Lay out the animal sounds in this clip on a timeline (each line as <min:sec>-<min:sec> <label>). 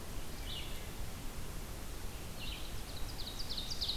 0:00.0-0:04.0 Red-eyed Vireo (Vireo olivaceus)
0:02.7-0:04.0 Ovenbird (Seiurus aurocapilla)